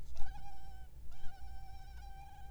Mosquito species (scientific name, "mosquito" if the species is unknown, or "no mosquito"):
Culex pipiens complex